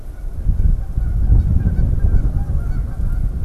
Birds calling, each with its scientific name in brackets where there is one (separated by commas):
Canada Goose (Branta canadensis)